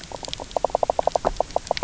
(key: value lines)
label: biophony, knock croak
recorder: SoundTrap 300